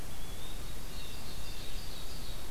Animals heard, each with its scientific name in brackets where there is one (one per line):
Blue Jay (Cyanocitta cristata)
Eastern Wood-Pewee (Contopus virens)
Ovenbird (Seiurus aurocapilla)